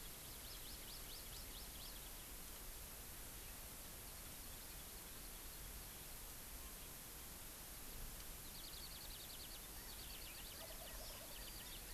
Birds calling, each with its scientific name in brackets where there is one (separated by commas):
Hawaii Amakihi (Chlorodrepanis virens), California Quail (Callipepla californica), Eurasian Skylark (Alauda arvensis), Wild Turkey (Meleagris gallopavo)